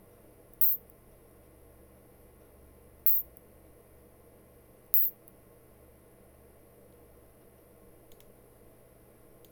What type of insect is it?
orthopteran